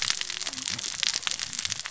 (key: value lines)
label: biophony, cascading saw
recorder: SoundTrap 600 or HydroMoth